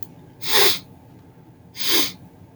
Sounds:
Sniff